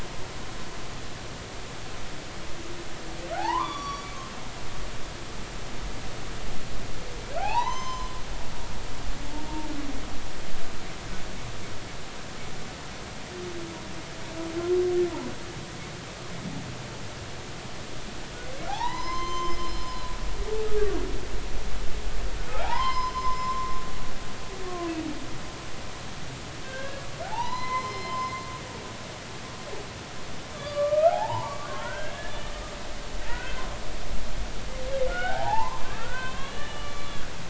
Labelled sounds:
3.3	4.1	humpback whale, 0.80 to 4.7 kHz
4.7	5.0	humpback whale, 5.6 to 5.8 kHz
7.4	8.1	humpback whale, 0.80 to 6.3 kHz
18.7	20.0	humpback whale, 0.80 to 6.3 kHz
22.5	23.7	humpback whale, 0.80 to 5.3 kHz
26.6	28.3	humpback whale, 0.80 to 5.2 kHz
30.5	32.3	humpback whale, 0.80 to 3.6 kHz
33.3	33.6	humpback whale, 1.4 to 2.1 kHz
35.1	37.1	humpback whale, 0.80 to 3.4 kHz

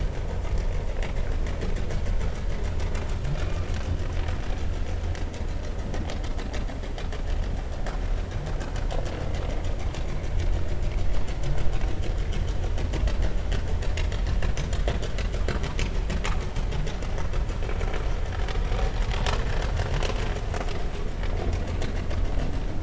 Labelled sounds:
3.4	3.6	humpback whale, 2.4 to 2.5 kHz

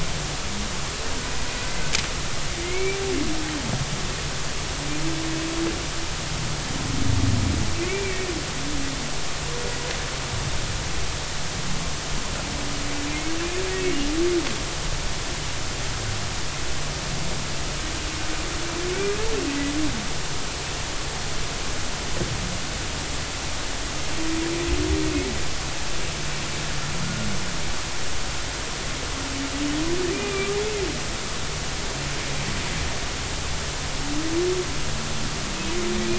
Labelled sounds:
2.6	3.0	humpback whale, 2.0 to 2.4 kHz
7.8	8.3	humpback whale, 2.0 to 2.4 kHz
30.1	30.6	humpback whale, 1.1 to 2.5 kHz

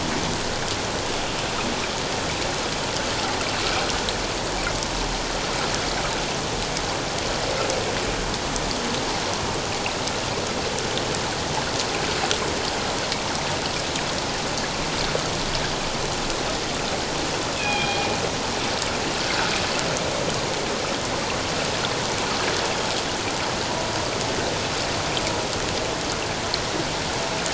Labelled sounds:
17.5	18.1	killer whale, northern resident, G clan, 2.3 to 3.5 kHz

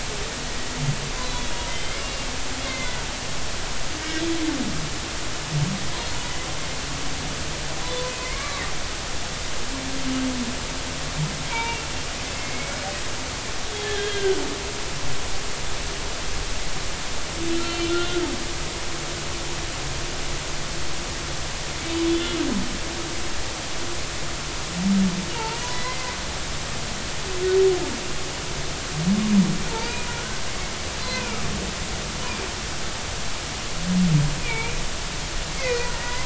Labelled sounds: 1.3	2.3	humpback whale, 2.0 to 3.5 kHz
2.7	3.0	humpback whale, 2.0 to 2.2 kHz
4.0	4.3	humpback whale, 1.9 to 2.0 kHz
8.2	8.6	humpback whale, 0.99 to 2.4 kHz
11.5	11.8	humpback whale, 0.86 to 2.4 kHz
12.3	12.8	humpback whale, 2.1 to 2.3 kHz
13.8	14.4	humpback whale, 1.5 to 3.4 kHz
17.5	18.3	humpback whale, 1.2 to 4.1 kHz
22.1	22.3	humpback whale, 3.3 to 3.6 kHz
25.3	26.2	humpback whale, 0.83 to 2.1 kHz
29.7	30.4	humpback whale, 0.83 to 2.5 kHz
31.1	31.4	humpback whale, 2.2 to 2.6 kHz
34.4	34.8	humpback whale, 2.1 to 2.5 kHz
35.6	36.2	humpback whale, 0.93 to 2.7 kHz

